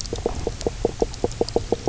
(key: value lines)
label: biophony, knock croak
recorder: SoundTrap 300